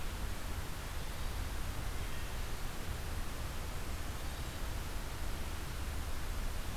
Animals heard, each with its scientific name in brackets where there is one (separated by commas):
Hermit Thrush (Catharus guttatus)